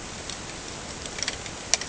{"label": "ambient", "recorder": "HydroMoth"}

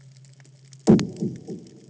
{"label": "anthrophony, bomb", "recorder": "HydroMoth"}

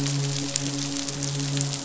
{"label": "biophony, midshipman", "recorder": "SoundTrap 500"}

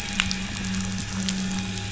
{"label": "anthrophony, boat engine", "recorder": "SoundTrap 500"}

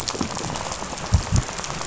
{"label": "biophony, rattle", "recorder": "SoundTrap 500"}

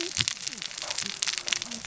{"label": "biophony, cascading saw", "recorder": "SoundTrap 600 or HydroMoth"}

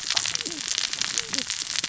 {"label": "biophony, cascading saw", "recorder": "SoundTrap 600 or HydroMoth"}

